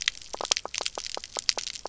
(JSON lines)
{"label": "biophony, knock croak", "recorder": "SoundTrap 300"}